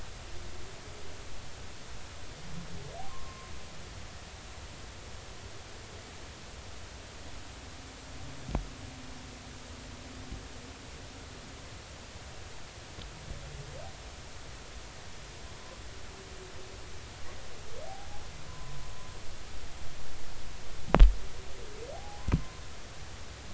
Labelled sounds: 3.1	3.5	humpback whale, 0.96 to 1.1 kHz
18.5	18.8	humpback whale, 0.96 to 1.2 kHz
21.9	22.3	humpback whale, 0.80 to 0.90 kHz

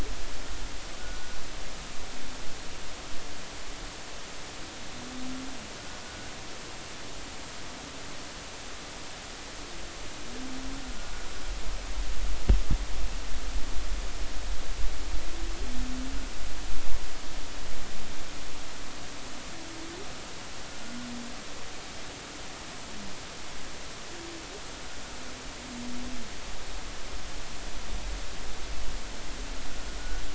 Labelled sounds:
1.0	1.3	humpback whale, 1.4 to 1.5 kHz
6.0	6.3	humpback whale, 1.4 to 1.5 kHz

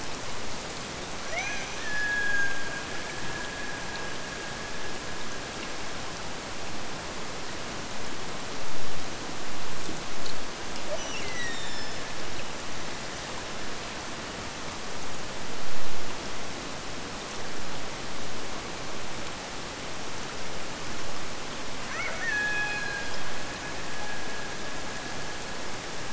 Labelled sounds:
1.1	6.4	killer whale, Bigg's (transient), Gulf of Alaska transient, 0.42 to 6.5 kHz
10.9	12.4	killer whale, Bigg's (transient), Gulf of Alaska transient, 1.6 to 8.0 kHz
21.9	26.1	killer whale, Bigg's (transient), Gulf of Alaska transient, 0.34 to 6.2 kHz

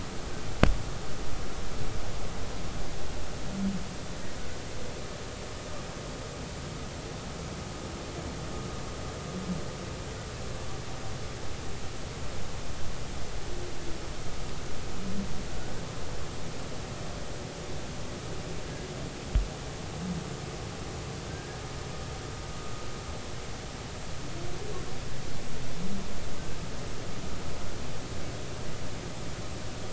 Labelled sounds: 18.6	18.9	humpback whale, 1.6 to 1.7 kHz
21.3	21.6	humpback whale, 1.5 to 1.7 kHz

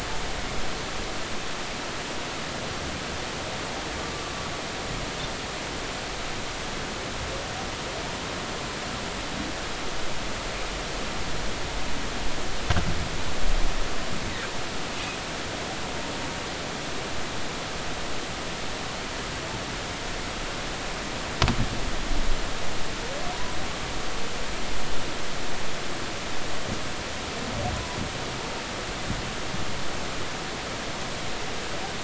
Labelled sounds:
23.3	23.6	humpback whale, 0.93 to 1.0 kHz

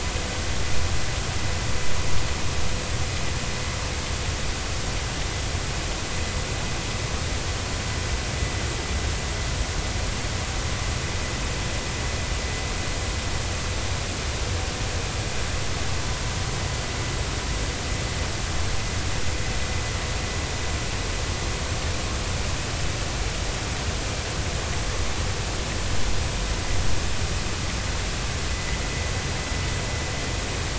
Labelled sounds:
28.5	28.8	vessel noise, 1.9 to 2.1 kHz

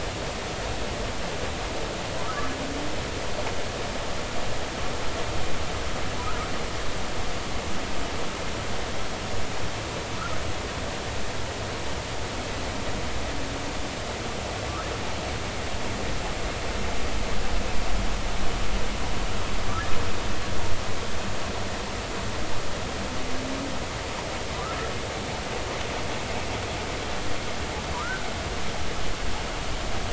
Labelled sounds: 27.9	28.2	humpback whale, 0.93 to 1.6 kHz

